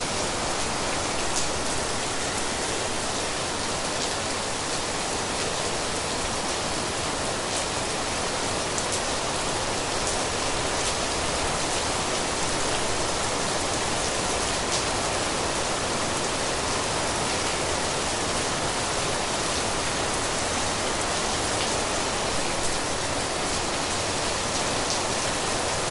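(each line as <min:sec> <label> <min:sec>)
0:00.0 Rain falls loudly and constantly. 0:25.9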